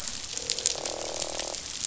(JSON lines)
{"label": "biophony, croak", "recorder": "SoundTrap 500"}